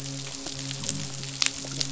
{"label": "biophony, midshipman", "recorder": "SoundTrap 500"}
{"label": "biophony", "recorder": "SoundTrap 500"}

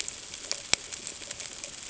{"label": "ambient", "recorder": "HydroMoth"}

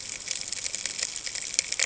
{"label": "ambient", "recorder": "HydroMoth"}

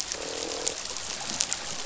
{"label": "biophony, croak", "recorder": "SoundTrap 500"}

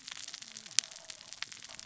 {"label": "biophony, cascading saw", "recorder": "SoundTrap 600 or HydroMoth"}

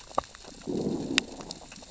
{"label": "biophony, growl", "recorder": "SoundTrap 600 or HydroMoth"}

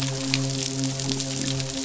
{"label": "biophony, midshipman", "recorder": "SoundTrap 500"}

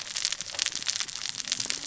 {"label": "biophony, cascading saw", "recorder": "SoundTrap 600 or HydroMoth"}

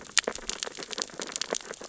{"label": "biophony, sea urchins (Echinidae)", "recorder": "SoundTrap 600 or HydroMoth"}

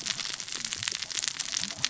{"label": "biophony, cascading saw", "recorder": "SoundTrap 600 or HydroMoth"}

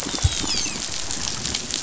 {"label": "biophony, dolphin", "recorder": "SoundTrap 500"}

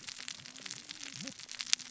{"label": "biophony, cascading saw", "recorder": "SoundTrap 600 or HydroMoth"}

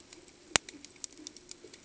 {"label": "ambient", "recorder": "HydroMoth"}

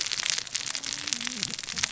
{"label": "biophony, cascading saw", "recorder": "SoundTrap 600 or HydroMoth"}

